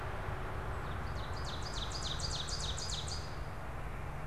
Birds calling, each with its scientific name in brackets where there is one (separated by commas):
Ovenbird (Seiurus aurocapilla)